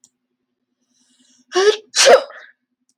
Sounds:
Sneeze